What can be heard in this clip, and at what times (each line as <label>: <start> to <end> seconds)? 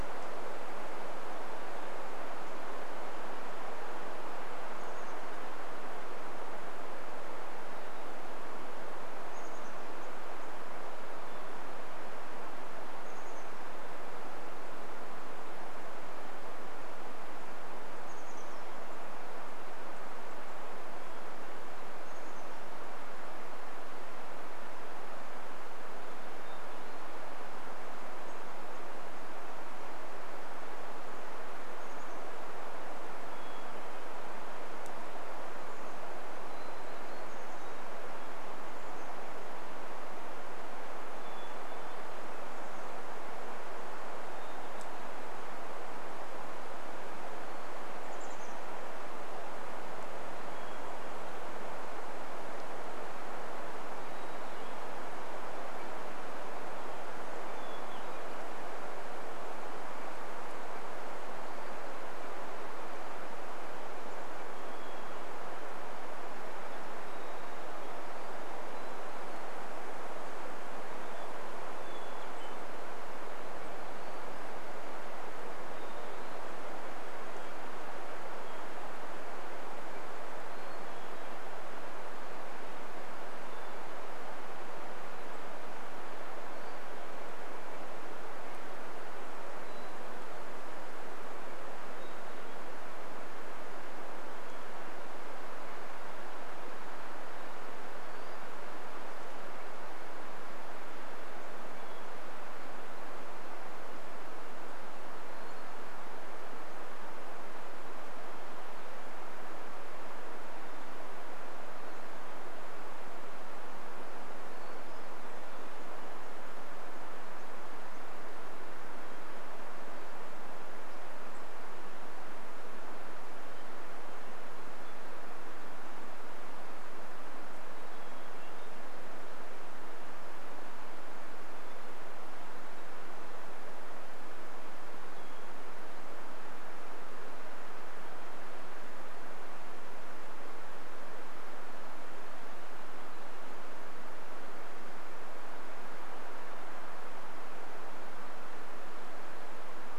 Chestnut-backed Chickadee call: 4 to 6 seconds
Hermit Thrush song: 6 to 14 seconds
Chestnut-backed Chickadee call: 8 to 10 seconds
Chestnut-backed Chickadee call: 12 to 14 seconds
Chestnut-backed Chickadee call: 18 to 20 seconds
Hermit Thrush song: 20 to 22 seconds
Chestnut-backed Chickadee call: 22 to 24 seconds
Hermit Thrush song: 26 to 28 seconds
unidentified bird chip note: 28 to 30 seconds
Chestnut-backed Chickadee call: 30 to 40 seconds
Hermit Thrush song: 32 to 34 seconds
Hermit Thrush song: 36 to 52 seconds
Chestnut-backed Chickadee call: 42 to 44 seconds
Chestnut-backed Chickadee call: 48 to 50 seconds
Hermit Thrush song: 54 to 62 seconds
Hermit Thrush song: 64 to 84 seconds
Chestnut-backed Chickadee call: 72 to 74 seconds
Hermit Thrush song: 86 to 90 seconds
Hermit Thrush song: 92 to 96 seconds
Hermit Thrush song: 98 to 106 seconds
Hermit Thrush song: 110 to 112 seconds
Hermit Thrush song: 114 to 116 seconds
unidentified bird chip note: 116 to 118 seconds
Hermit Thrush song: 118 to 136 seconds
unidentified bird chip note: 120 to 122 seconds
Hermit Thrush song: 138 to 140 seconds